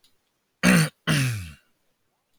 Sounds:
Throat clearing